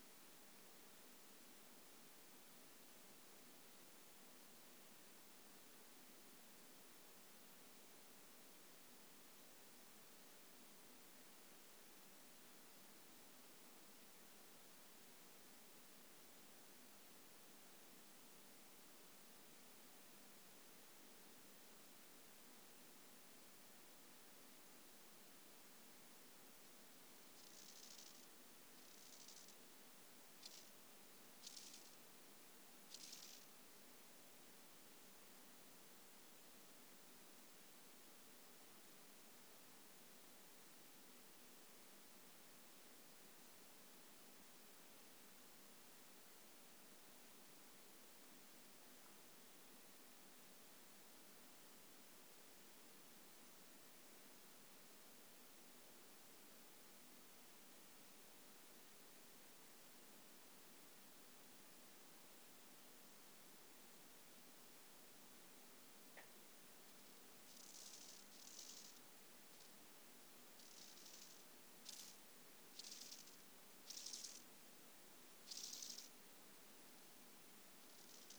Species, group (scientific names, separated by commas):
Chorthippus biguttulus, Orthoptera